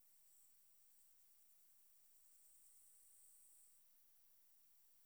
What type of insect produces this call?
orthopteran